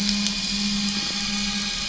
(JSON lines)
{"label": "anthrophony, boat engine", "recorder": "SoundTrap 500"}